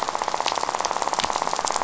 {"label": "biophony, rattle", "recorder": "SoundTrap 500"}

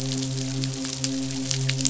{"label": "biophony, midshipman", "recorder": "SoundTrap 500"}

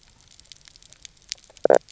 {"label": "biophony, knock croak", "recorder": "SoundTrap 300"}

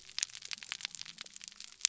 {"label": "biophony", "recorder": "SoundTrap 300"}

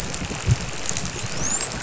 {"label": "biophony, dolphin", "recorder": "SoundTrap 500"}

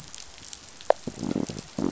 {"label": "biophony", "recorder": "SoundTrap 500"}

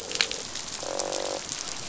{"label": "biophony, croak", "recorder": "SoundTrap 500"}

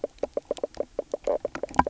{"label": "biophony, knock croak", "recorder": "SoundTrap 300"}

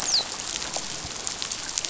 {"label": "biophony, dolphin", "recorder": "SoundTrap 500"}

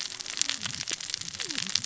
{"label": "biophony, cascading saw", "recorder": "SoundTrap 600 or HydroMoth"}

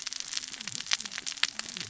{"label": "biophony, cascading saw", "recorder": "SoundTrap 600 or HydroMoth"}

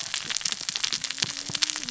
{"label": "biophony, cascading saw", "recorder": "SoundTrap 600 or HydroMoth"}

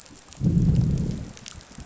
{"label": "biophony, growl", "recorder": "SoundTrap 500"}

